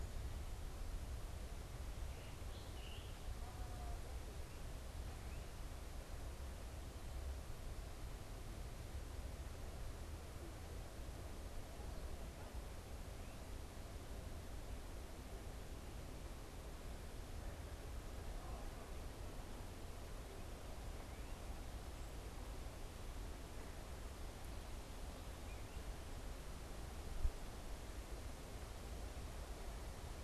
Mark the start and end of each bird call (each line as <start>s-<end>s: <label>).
2.0s-3.4s: Scarlet Tanager (Piranga olivacea)